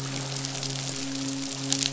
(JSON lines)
{"label": "biophony, midshipman", "recorder": "SoundTrap 500"}